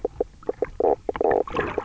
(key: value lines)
label: biophony, knock croak
recorder: SoundTrap 300